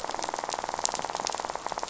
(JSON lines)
{"label": "biophony, rattle", "recorder": "SoundTrap 500"}